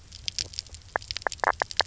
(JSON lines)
{"label": "biophony, knock croak", "recorder": "SoundTrap 300"}